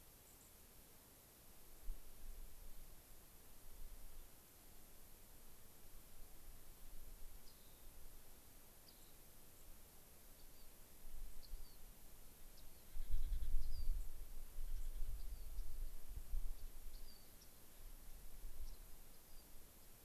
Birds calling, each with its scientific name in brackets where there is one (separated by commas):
unidentified bird, White-crowned Sparrow (Zonotrichia leucophrys), Rock Wren (Salpinctes obsoletus)